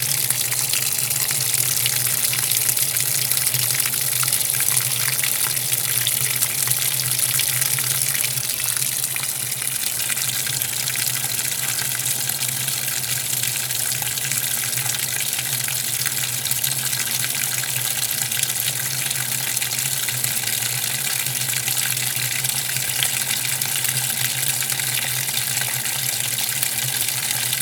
Could something be frying??
yes